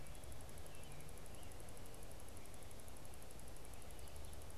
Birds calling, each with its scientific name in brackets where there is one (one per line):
American Robin (Turdus migratorius)